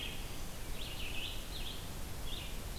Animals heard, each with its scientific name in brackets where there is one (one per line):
Red-eyed Vireo (Vireo olivaceus)